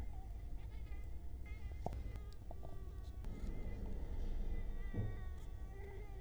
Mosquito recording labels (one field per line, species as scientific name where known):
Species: Culex quinquefasciatus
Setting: cup